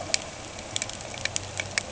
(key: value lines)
label: anthrophony, boat engine
recorder: HydroMoth